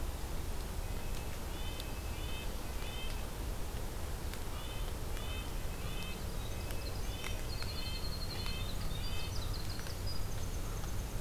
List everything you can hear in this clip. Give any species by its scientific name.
Sitta canadensis, Troglodytes hiemalis